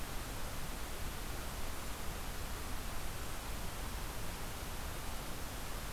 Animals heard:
forest ambience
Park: Acadia National Park